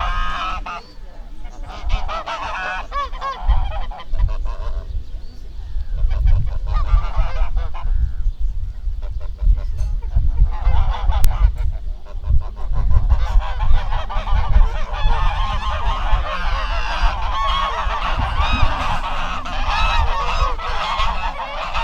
Are people talking?
no